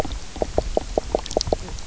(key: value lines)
label: biophony, knock croak
recorder: SoundTrap 300